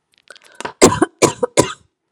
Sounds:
Cough